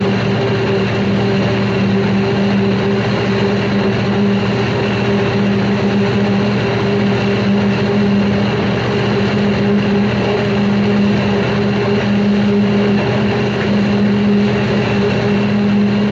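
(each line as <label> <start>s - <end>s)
A train passes at a steady speed. 0.0s - 16.1s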